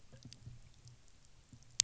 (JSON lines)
{"label": "anthrophony, boat engine", "recorder": "SoundTrap 300"}